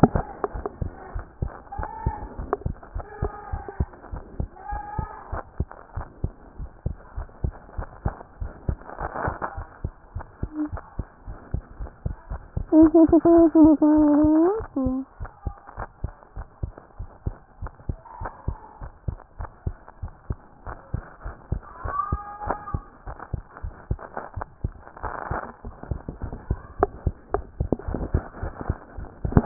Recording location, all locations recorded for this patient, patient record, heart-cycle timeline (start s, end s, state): pulmonary valve (PV)
pulmonary valve (PV)+tricuspid valve (TV)+mitral valve (MV)
#Age: Child
#Sex: Female
#Height: 90.0 cm
#Weight: 15.6 kg
#Pregnancy status: False
#Murmur: Absent
#Murmur locations: nan
#Most audible location: nan
#Systolic murmur timing: nan
#Systolic murmur shape: nan
#Systolic murmur grading: nan
#Systolic murmur pitch: nan
#Systolic murmur quality: nan
#Diastolic murmur timing: nan
#Diastolic murmur shape: nan
#Diastolic murmur grading: nan
#Diastolic murmur pitch: nan
#Diastolic murmur quality: nan
#Outcome: Normal
#Campaign: 2014 screening campaign
0.00	0.54	unannotated
0.54	0.64	S1
0.64	0.80	systole
0.80	0.90	S2
0.90	1.14	diastole
1.14	1.24	S1
1.24	1.40	systole
1.40	1.52	S2
1.52	1.78	diastole
1.78	1.88	S1
1.88	2.04	systole
2.04	2.14	S2
2.14	2.38	diastole
2.38	2.50	S1
2.50	2.66	systole
2.66	2.74	S2
2.74	2.94	diastole
2.94	3.06	S1
3.06	3.22	systole
3.22	3.30	S2
3.30	3.52	diastole
3.52	3.62	S1
3.62	3.78	systole
3.78	3.88	S2
3.88	4.12	diastole
4.12	4.22	S1
4.22	4.38	systole
4.38	4.48	S2
4.48	4.72	diastole
4.72	4.82	S1
4.82	4.98	systole
4.98	5.08	S2
5.08	5.30	diastole
5.30	5.42	S1
5.42	5.58	systole
5.58	5.68	S2
5.68	5.96	diastole
5.96	6.06	S1
6.06	6.22	systole
6.22	6.32	S2
6.32	6.58	diastole
6.58	6.70	S1
6.70	6.84	systole
6.84	6.94	S2
6.94	7.18	diastole
7.18	7.28	S1
7.28	7.42	systole
7.42	7.54	S2
7.54	7.78	diastole
7.78	7.88	S1
7.88	8.04	systole
8.04	8.12	S2
8.12	8.40	diastole
8.40	8.52	S1
8.52	8.68	systole
8.68	8.78	S2
8.78	9.02	diastole
9.02	9.12	S1
9.12	9.26	systole
9.26	9.34	S2
9.34	9.58	diastole
9.58	29.46	unannotated